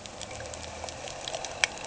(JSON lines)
{"label": "anthrophony, boat engine", "recorder": "HydroMoth"}